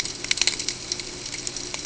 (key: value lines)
label: ambient
recorder: HydroMoth